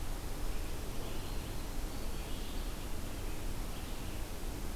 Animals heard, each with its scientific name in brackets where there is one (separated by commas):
Red-eyed Vireo (Vireo olivaceus)